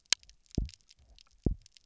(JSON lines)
{"label": "biophony, double pulse", "recorder": "SoundTrap 300"}